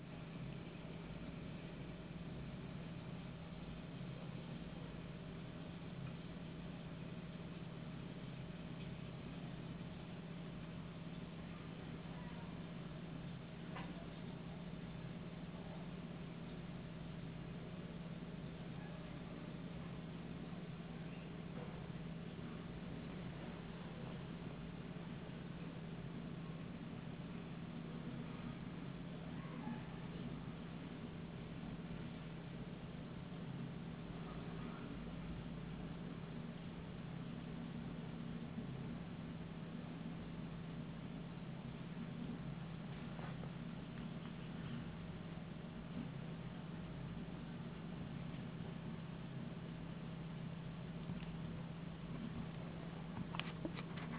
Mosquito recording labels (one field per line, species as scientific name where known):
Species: no mosquito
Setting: insect culture